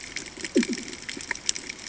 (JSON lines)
{"label": "anthrophony, bomb", "recorder": "HydroMoth"}